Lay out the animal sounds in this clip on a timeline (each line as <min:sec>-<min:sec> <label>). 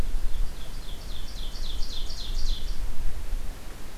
0:00.0-0:02.9 Ovenbird (Seiurus aurocapilla)